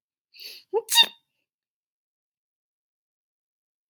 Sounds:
Sneeze